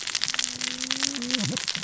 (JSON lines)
{"label": "biophony, cascading saw", "recorder": "SoundTrap 600 or HydroMoth"}